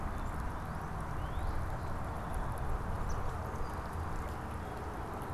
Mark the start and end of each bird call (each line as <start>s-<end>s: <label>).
0.0s-5.3s: Song Sparrow (Melospiza melodia)
1.0s-1.6s: Northern Cardinal (Cardinalis cardinalis)
3.0s-3.3s: Eastern Phoebe (Sayornis phoebe)